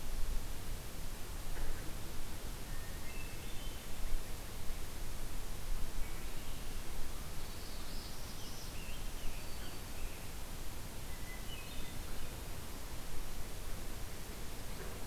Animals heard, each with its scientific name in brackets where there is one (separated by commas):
Scarlet Tanager (Piranga olivacea), Black-throated Green Warbler (Setophaga virens), Northern Parula (Setophaga americana), Hermit Thrush (Catharus guttatus)